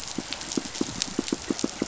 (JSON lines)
{"label": "biophony, pulse", "recorder": "SoundTrap 500"}